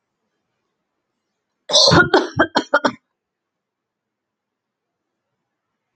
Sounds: Cough